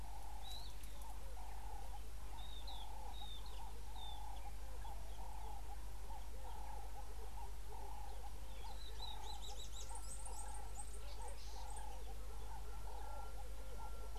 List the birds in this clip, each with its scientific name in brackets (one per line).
Pale White-eye (Zosterops flavilateralis)
Ring-necked Dove (Streptopelia capicola)